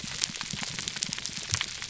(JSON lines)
{"label": "biophony, pulse", "recorder": "SoundTrap 300"}